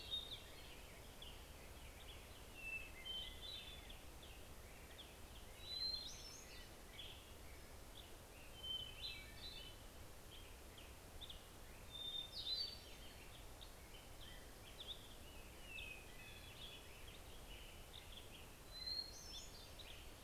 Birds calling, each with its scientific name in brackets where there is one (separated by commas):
Hermit Thrush (Catharus guttatus), Black-headed Grosbeak (Pheucticus melanocephalus)